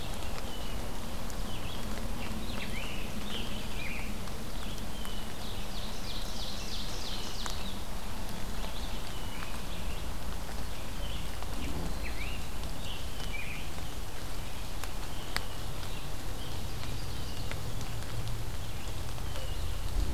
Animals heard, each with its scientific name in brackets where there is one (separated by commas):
Ovenbird (Seiurus aurocapilla), Blue Jay (Cyanocitta cristata), Scarlet Tanager (Piranga olivacea)